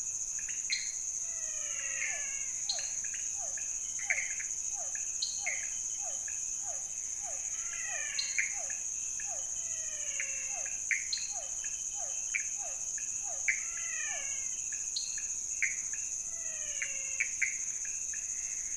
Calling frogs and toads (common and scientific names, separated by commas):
pointedbelly frog (Leptodactylus podicipinus), Pithecopus azureus, dwarf tree frog (Dendropsophus nanus), menwig frog (Physalaemus albonotatus), Physalaemus cuvieri